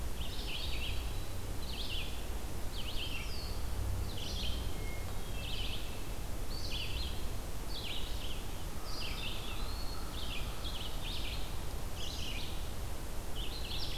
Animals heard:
Red-eyed Vireo (Vireo olivaceus), Eastern Wood-Pewee (Contopus virens), Hermit Thrush (Catharus guttatus)

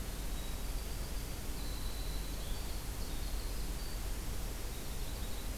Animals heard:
Yellow-rumped Warbler (Setophaga coronata), Winter Wren (Troglodytes hiemalis)

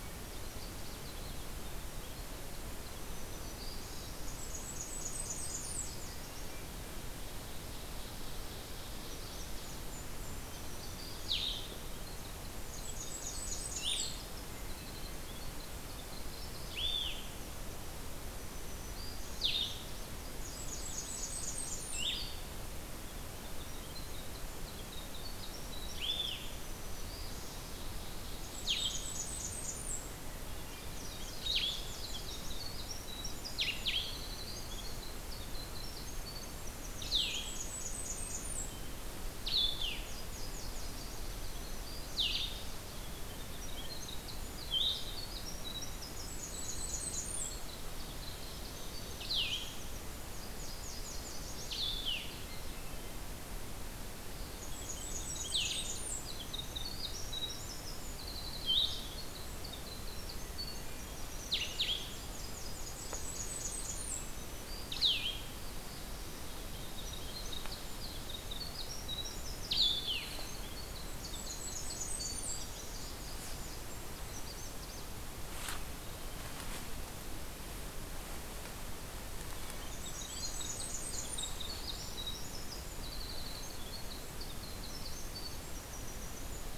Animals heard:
Black-throated Green Warbler (Setophaga virens), Black-throated Blue Warbler (Setophaga caerulescens), Winter Wren (Troglodytes hiemalis), Nashville Warbler (Leiothlypis ruficapilla), Blue-headed Vireo (Vireo solitarius), Magnolia Warbler (Setophaga magnolia), Golden-crowned Kinglet (Regulus satrapa), Blackburnian Warbler (Setophaga fusca), Ovenbird (Seiurus aurocapilla)

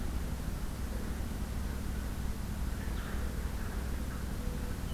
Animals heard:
Blue-headed Vireo (Vireo solitarius), Mourning Dove (Zenaida macroura)

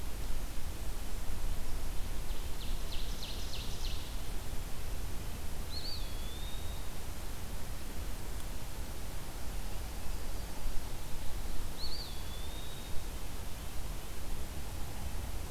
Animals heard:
Eastern Wood-Pewee (Contopus virens), Ovenbird (Seiurus aurocapilla)

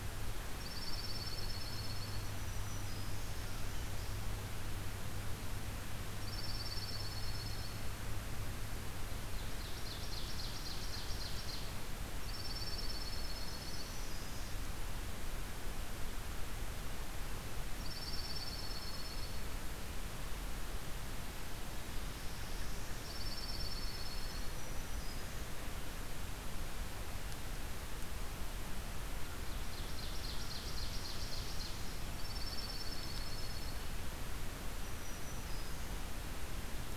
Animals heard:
Black-throated Green Warbler (Setophaga virens), Ovenbird (Seiurus aurocapilla), Northern Parula (Setophaga americana), Dark-eyed Junco (Junco hyemalis)

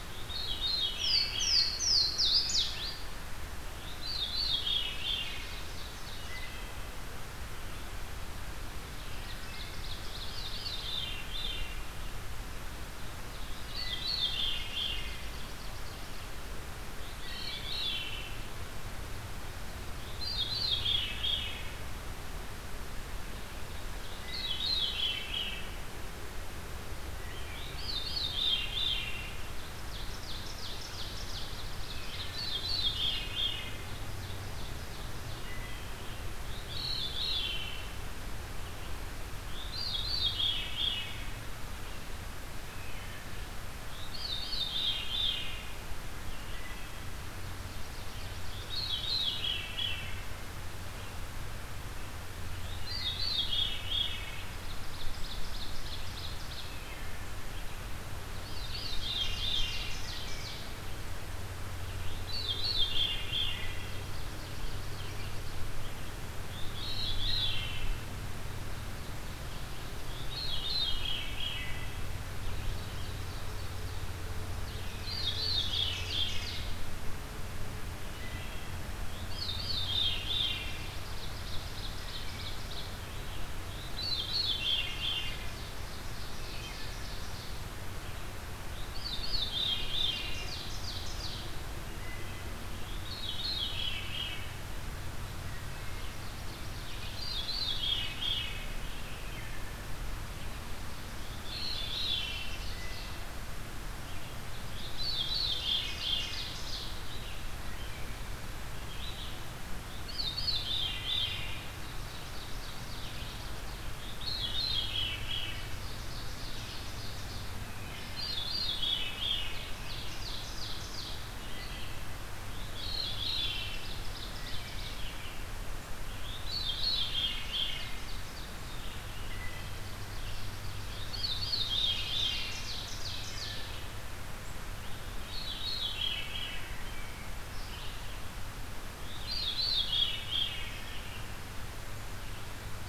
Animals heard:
Louisiana Waterthrush (Parkesia motacilla), Red-eyed Vireo (Vireo olivaceus), Veery (Catharus fuscescens), Wood Thrush (Hylocichla mustelina), Ovenbird (Seiurus aurocapilla)

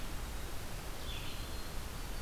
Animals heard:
Black-throated Green Warbler (Setophaga virens), Red-eyed Vireo (Vireo olivaceus)

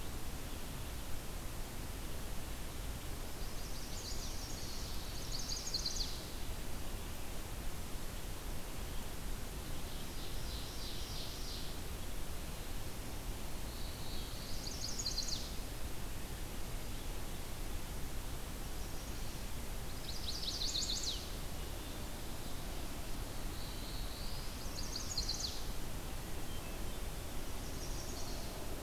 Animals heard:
Ovenbird (Seiurus aurocapilla), Black-throated Blue Warbler (Setophaga caerulescens), Hermit Thrush (Catharus guttatus), Chestnut-sided Warbler (Setophaga pensylvanica)

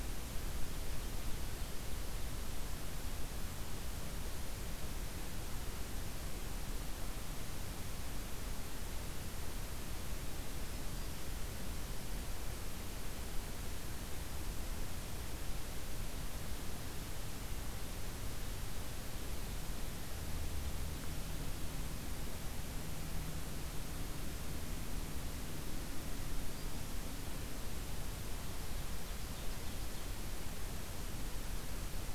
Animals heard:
Black-throated Green Warbler (Setophaga virens), Ovenbird (Seiurus aurocapilla)

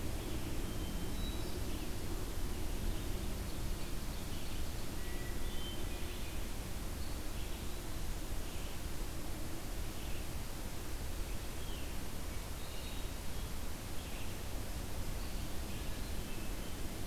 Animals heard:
Hermit Thrush (Catharus guttatus), Ovenbird (Seiurus aurocapilla), Red-eyed Vireo (Vireo olivaceus)

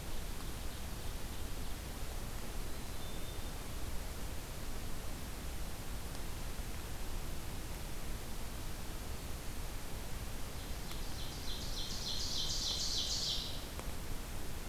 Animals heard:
Ovenbird (Seiurus aurocapilla), Black-capped Chickadee (Poecile atricapillus)

